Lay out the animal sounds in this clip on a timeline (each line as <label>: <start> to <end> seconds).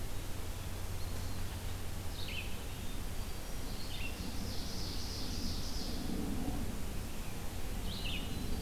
Red-eyed Vireo (Vireo olivaceus): 0.0 to 8.6 seconds
Hermit Thrush (Catharus guttatus): 2.5 to 3.7 seconds
Ovenbird (Seiurus aurocapilla): 4.1 to 6.0 seconds